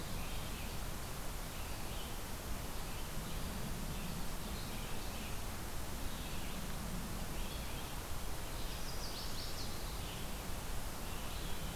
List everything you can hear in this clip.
Red-eyed Vireo, Chestnut-sided Warbler